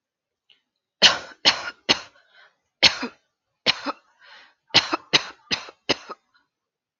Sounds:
Cough